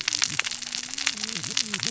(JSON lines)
{"label": "biophony, cascading saw", "recorder": "SoundTrap 600 or HydroMoth"}